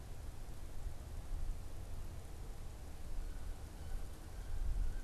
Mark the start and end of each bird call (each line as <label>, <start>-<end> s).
Wood Duck (Aix sponsa), 3.0-5.0 s